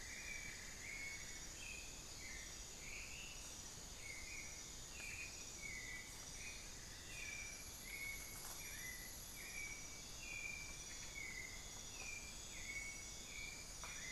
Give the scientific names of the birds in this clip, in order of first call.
Dendrexetastes rufigula, Turdus albicollis, Formicarius analis, Dendrocolaptes certhia